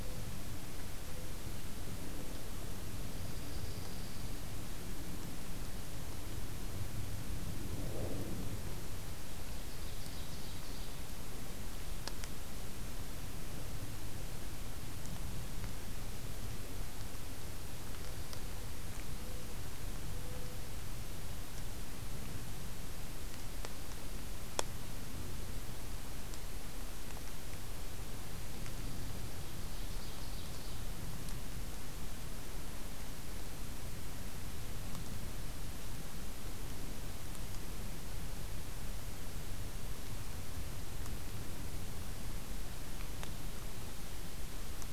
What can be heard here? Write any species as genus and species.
Junco hyemalis, Seiurus aurocapilla